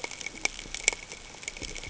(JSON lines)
{"label": "ambient", "recorder": "HydroMoth"}